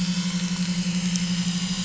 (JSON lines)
{"label": "anthrophony, boat engine", "recorder": "SoundTrap 500"}